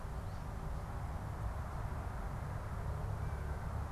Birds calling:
American Crow (Corvus brachyrhynchos)

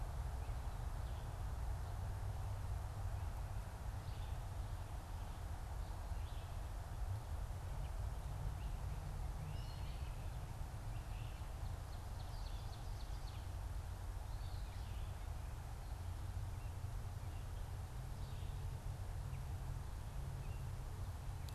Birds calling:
Ovenbird (Seiurus aurocapilla), Eastern Wood-Pewee (Contopus virens), Great Crested Flycatcher (Myiarchus crinitus)

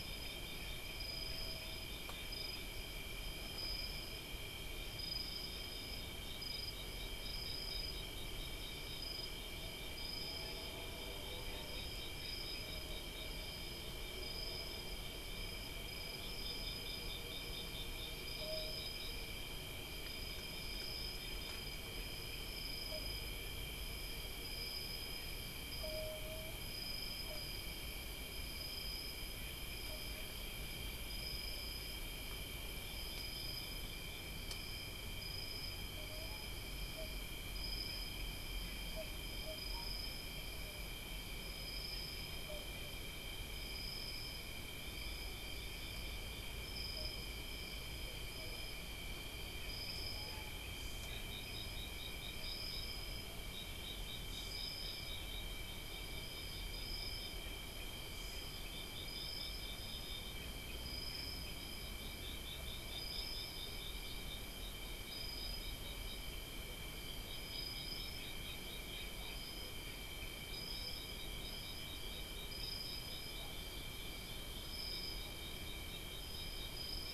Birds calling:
unidentified bird

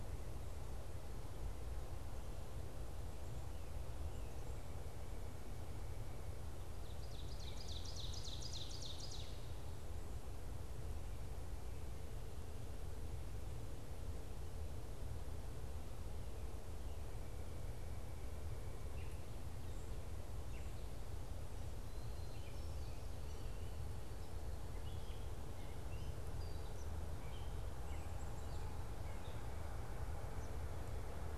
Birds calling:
Ovenbird (Seiurus aurocapilla), Gray Catbird (Dumetella carolinensis)

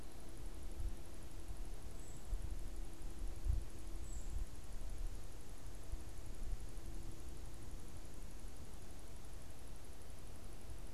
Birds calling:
unidentified bird

